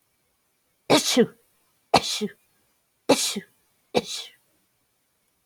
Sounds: Sneeze